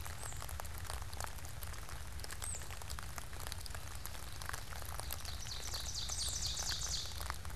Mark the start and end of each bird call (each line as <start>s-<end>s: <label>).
0.0s-3.2s: Tufted Titmouse (Baeolophus bicolor)
4.8s-7.5s: Ovenbird (Seiurus aurocapilla)